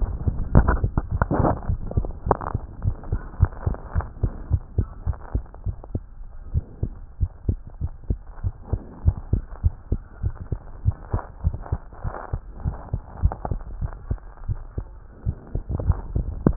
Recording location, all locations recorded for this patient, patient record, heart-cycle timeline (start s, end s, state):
tricuspid valve (TV)
aortic valve (AV)+pulmonary valve (PV)+tricuspid valve (TV)+mitral valve (MV)
#Age: Child
#Sex: Male
#Height: 101.0 cm
#Weight: 15.2 kg
#Pregnancy status: False
#Murmur: Absent
#Murmur locations: nan
#Most audible location: nan
#Systolic murmur timing: nan
#Systolic murmur shape: nan
#Systolic murmur grading: nan
#Systolic murmur pitch: nan
#Systolic murmur quality: nan
#Diastolic murmur timing: nan
#Diastolic murmur shape: nan
#Diastolic murmur grading: nan
#Diastolic murmur pitch: nan
#Diastolic murmur quality: nan
#Outcome: Abnormal
#Campaign: 2015 screening campaign
0.00	3.76	unannotated
3.76	3.94	diastole
3.94	4.08	S1
4.08	4.22	systole
4.22	4.34	S2
4.34	4.50	diastole
4.50	4.62	S1
4.62	4.76	systole
4.76	4.86	S2
4.86	5.06	diastole
5.06	5.16	S1
5.16	5.34	systole
5.34	5.44	S2
5.44	5.64	diastole
5.64	5.76	S1
5.76	5.92	systole
5.92	6.02	S2
6.02	6.52	diastole
6.52	6.64	S1
6.64	6.81	systole
6.81	6.94	S2
6.94	7.18	diastole
7.18	7.30	S1
7.30	7.44	systole
7.44	7.60	S2
7.60	7.82	diastole
7.82	7.92	S1
7.92	8.06	systole
8.06	8.20	S2
8.20	8.42	diastole
8.42	8.54	S1
8.54	8.70	systole
8.70	8.80	S2
8.80	9.02	diastole
9.02	9.18	S1
9.18	9.30	systole
9.30	9.44	S2
9.44	9.62	diastole
9.62	9.76	S1
9.76	9.90	systole
9.90	10.02	S2
10.02	10.20	diastole
10.20	10.34	S1
10.34	10.48	systole
10.48	10.60	S2
10.60	10.82	diastole
10.82	10.96	S1
10.96	11.12	systole
11.12	11.24	S2
11.24	11.44	diastole
11.44	11.58	S1
11.58	11.70	systole
11.70	11.80	S2
11.80	12.04	diastole
12.04	12.14	S1
12.14	12.32	systole
12.32	12.40	S2
12.40	12.64	diastole
12.64	12.78	S1
12.78	12.92	systole
12.92	13.02	S2
13.02	13.22	diastole
13.22	13.36	S1
13.36	13.48	systole
13.48	13.62	S2
13.62	13.78	diastole
13.78	13.92	S1
13.92	14.08	systole
14.08	14.20	S2
14.20	14.46	diastole
14.46	14.60	S1
14.60	14.76	systole
14.76	14.86	S2
14.86	15.06	diastole
15.06	16.56	unannotated